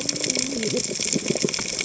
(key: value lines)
label: biophony, cascading saw
recorder: HydroMoth